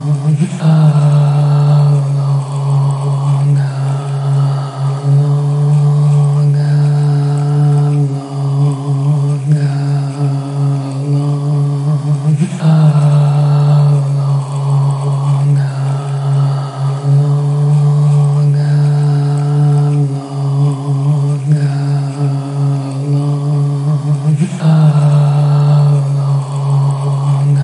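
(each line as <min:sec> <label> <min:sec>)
0:00.0 A woman sings deeply. 0:27.6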